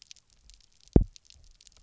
{"label": "biophony, double pulse", "recorder": "SoundTrap 300"}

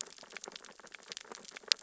{"label": "biophony, sea urchins (Echinidae)", "recorder": "SoundTrap 600 or HydroMoth"}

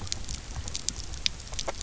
{"label": "biophony, grazing", "recorder": "SoundTrap 300"}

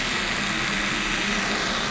{"label": "anthrophony, boat engine", "recorder": "SoundTrap 500"}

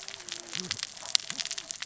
{"label": "biophony, cascading saw", "recorder": "SoundTrap 600 or HydroMoth"}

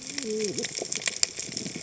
{"label": "biophony, cascading saw", "recorder": "HydroMoth"}
{"label": "biophony", "recorder": "HydroMoth"}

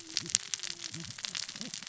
{"label": "biophony, cascading saw", "recorder": "SoundTrap 600 or HydroMoth"}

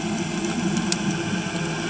{"label": "anthrophony, boat engine", "recorder": "HydroMoth"}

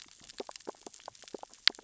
{"label": "biophony, sea urchins (Echinidae)", "recorder": "SoundTrap 600 or HydroMoth"}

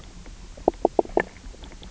{"label": "biophony, knock croak", "recorder": "SoundTrap 300"}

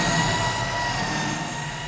{"label": "anthrophony, boat engine", "recorder": "SoundTrap 500"}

